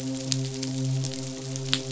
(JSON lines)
{"label": "biophony, midshipman", "recorder": "SoundTrap 500"}